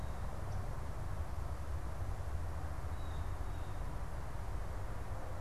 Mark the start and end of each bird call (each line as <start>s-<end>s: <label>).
0.0s-5.4s: American Goldfinch (Spinus tristis)
2.6s-5.4s: Blue Jay (Cyanocitta cristata)